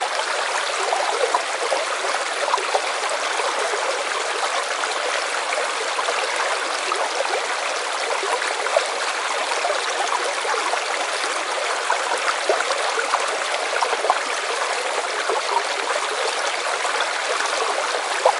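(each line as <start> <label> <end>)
0.0 Steady rain hitting the water. 18.4
0.0 Water flowing continuously. 18.4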